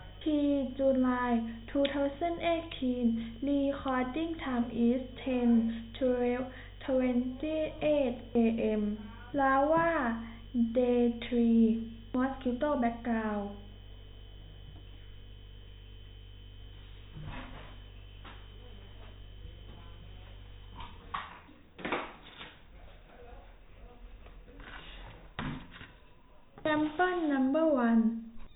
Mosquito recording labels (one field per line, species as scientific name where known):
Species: no mosquito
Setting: cup